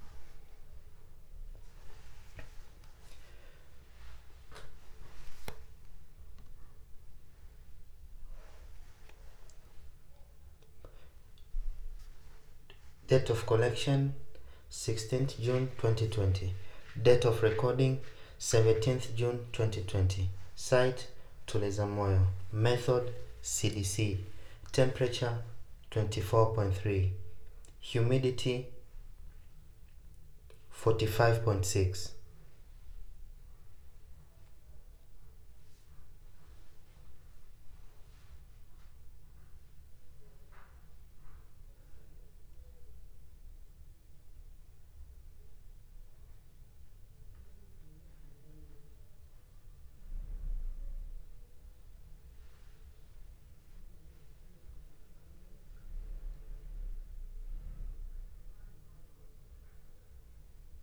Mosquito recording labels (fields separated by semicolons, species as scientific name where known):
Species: no mosquito; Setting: cup